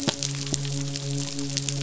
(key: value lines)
label: biophony, midshipman
recorder: SoundTrap 500